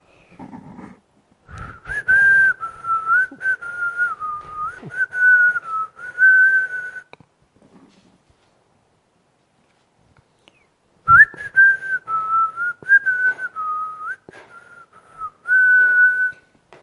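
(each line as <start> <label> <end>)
1.4 Human whistling melodically and clearly in a casual manner. 7.3
10.8 Human whistling melodically and clearly in a casual manner. 16.5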